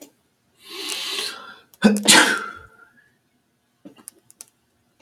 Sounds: Sneeze